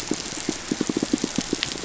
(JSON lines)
{"label": "biophony, pulse", "recorder": "SoundTrap 500"}